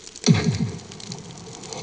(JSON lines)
{"label": "anthrophony, bomb", "recorder": "HydroMoth"}